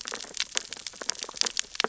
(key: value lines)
label: biophony, sea urchins (Echinidae)
recorder: SoundTrap 600 or HydroMoth